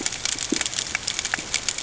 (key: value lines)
label: ambient
recorder: HydroMoth